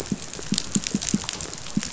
{"label": "biophony, pulse", "recorder": "SoundTrap 500"}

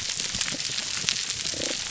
{"label": "biophony, damselfish", "recorder": "SoundTrap 300"}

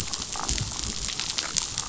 {"label": "biophony, damselfish", "recorder": "SoundTrap 500"}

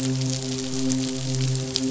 {"label": "biophony, midshipman", "recorder": "SoundTrap 500"}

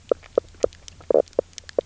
{"label": "biophony, knock croak", "recorder": "SoundTrap 300"}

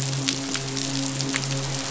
{"label": "biophony, midshipman", "recorder": "SoundTrap 500"}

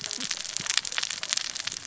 {"label": "biophony, cascading saw", "recorder": "SoundTrap 600 or HydroMoth"}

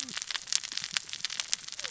{"label": "biophony, cascading saw", "recorder": "SoundTrap 600 or HydroMoth"}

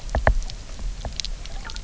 {"label": "biophony, knock", "recorder": "SoundTrap 300"}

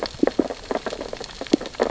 {"label": "biophony, sea urchins (Echinidae)", "recorder": "SoundTrap 600 or HydroMoth"}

